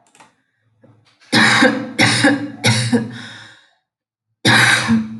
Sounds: Cough